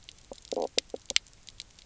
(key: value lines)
label: biophony, knock croak
recorder: SoundTrap 300